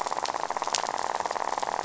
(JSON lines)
{"label": "biophony, rattle", "recorder": "SoundTrap 500"}